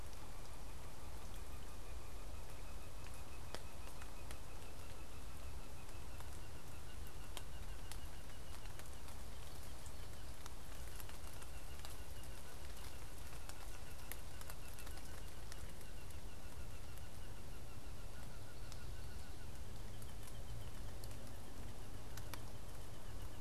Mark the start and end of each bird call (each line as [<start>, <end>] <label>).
[0.00, 23.41] Blue Jay (Cyanocitta cristata)